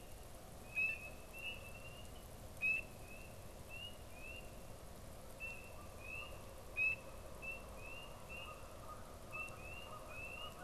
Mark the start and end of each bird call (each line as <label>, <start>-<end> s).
Canada Goose (Branta canadensis), 5.7-10.6 s